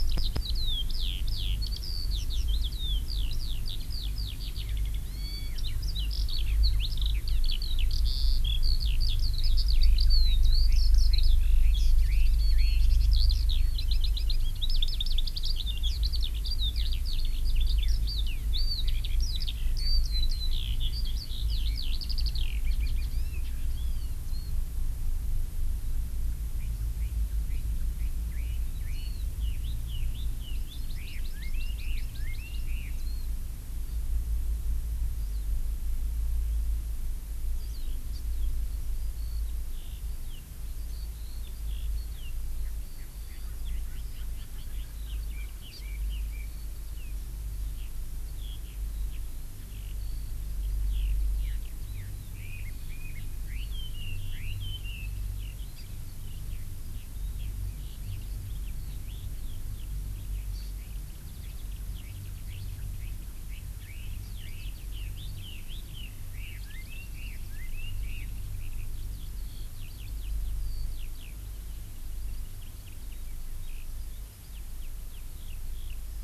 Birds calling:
Red-billed Leiothrix (Leiothrix lutea)
Warbling White-eye (Zosterops japonicus)
Erckel's Francolin (Pternistis erckelii)
Hawaii Amakihi (Chlorodrepanis virens)
Eurasian Skylark (Alauda arvensis)

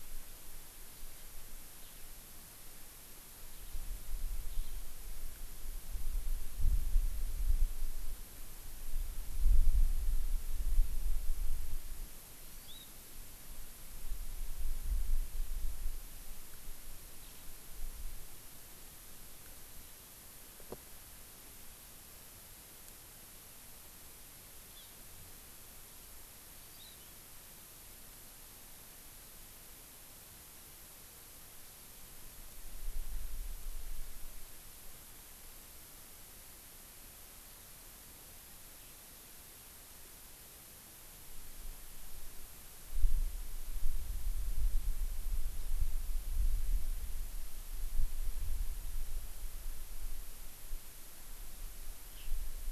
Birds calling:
Hawaii Amakihi (Chlorodrepanis virens)

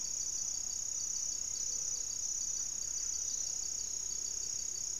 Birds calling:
Gray-fronted Dove (Leptotila rufaxilla)

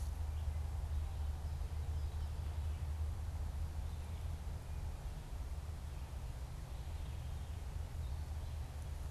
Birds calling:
Red-eyed Vireo (Vireo olivaceus)
Veery (Catharus fuscescens)

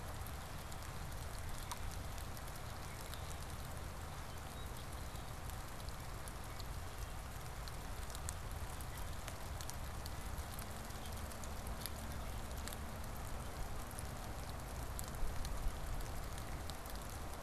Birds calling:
Common Grackle (Quiscalus quiscula)

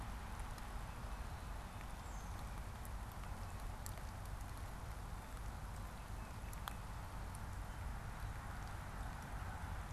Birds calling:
Tufted Titmouse (Baeolophus bicolor)

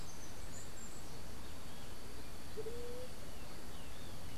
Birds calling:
Andean Motmot (Momotus aequatorialis)
White-tipped Dove (Leptotila verreauxi)
Steely-vented Hummingbird (Saucerottia saucerottei)

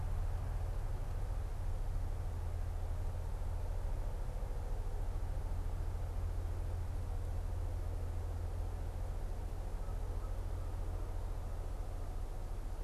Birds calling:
Canada Goose (Branta canadensis)

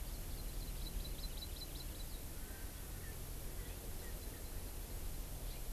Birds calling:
Hawaii Amakihi (Chlorodrepanis virens)

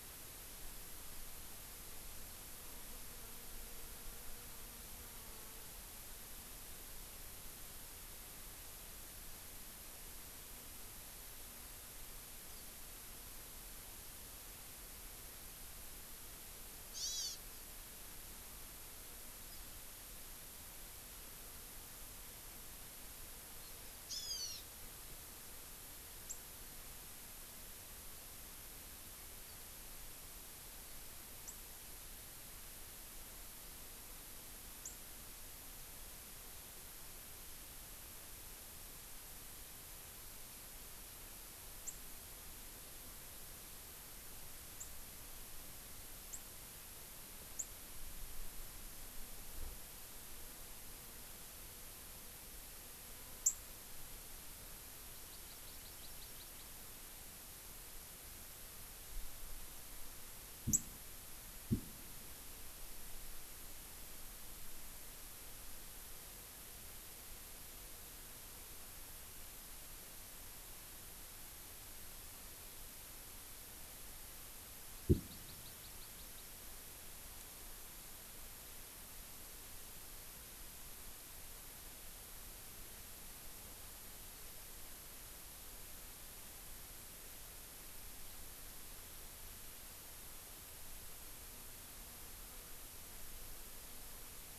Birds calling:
Hawaii Amakihi (Chlorodrepanis virens)
Warbling White-eye (Zosterops japonicus)
Hawaiian Hawk (Buteo solitarius)

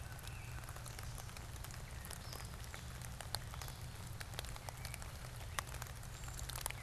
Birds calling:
Gray Catbird (Dumetella carolinensis)

